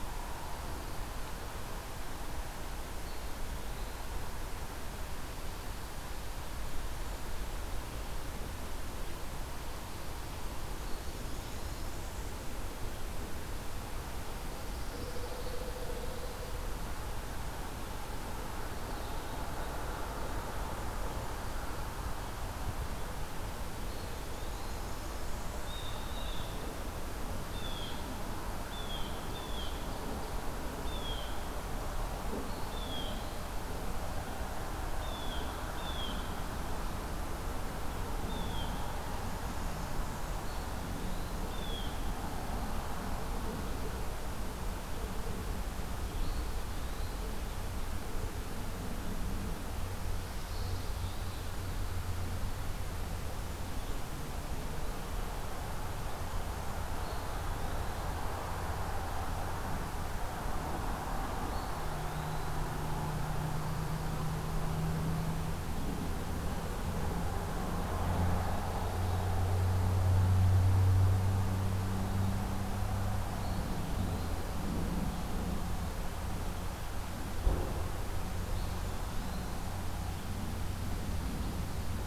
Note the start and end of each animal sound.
[2.88, 4.14] Eastern Wood-Pewee (Contopus virens)
[10.87, 12.41] Blackburnian Warbler (Setophaga fusca)
[14.19, 16.18] Pine Warbler (Setophaga pinus)
[23.73, 24.88] Eastern Wood-Pewee (Contopus virens)
[23.94, 25.89] Blackburnian Warbler (Setophaga fusca)
[25.57, 41.97] Blue Jay (Cyanocitta cristata)
[32.45, 33.53] Eastern Wood-Pewee (Contopus virens)
[40.25, 41.40] Eastern Wood-Pewee (Contopus virens)
[46.04, 47.41] Eastern Wood-Pewee (Contopus virens)
[50.41, 51.59] Eastern Wood-Pewee (Contopus virens)
[56.83, 58.05] Eastern Wood-Pewee (Contopus virens)
[61.42, 62.60] Eastern Wood-Pewee (Contopus virens)
[73.25, 74.43] Eastern Wood-Pewee (Contopus virens)
[78.36, 79.71] Eastern Wood-Pewee (Contopus virens)

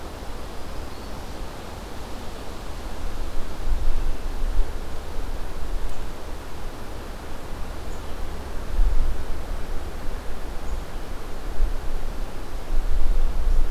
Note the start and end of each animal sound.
[0.00, 1.36] Black-throated Green Warbler (Setophaga virens)

